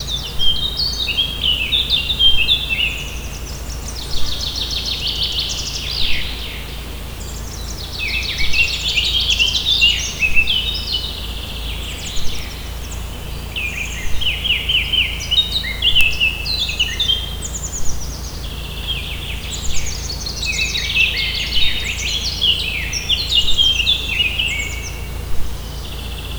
Are there multiple birds chirping?
yes